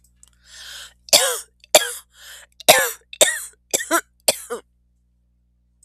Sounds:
Cough